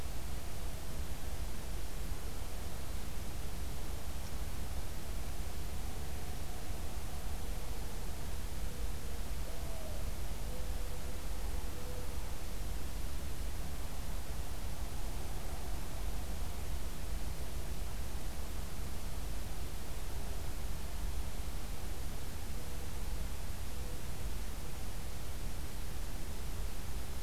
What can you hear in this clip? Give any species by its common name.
Mourning Dove